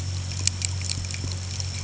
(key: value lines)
label: anthrophony, boat engine
recorder: HydroMoth